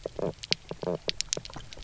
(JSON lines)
{"label": "biophony, knock croak", "recorder": "SoundTrap 300"}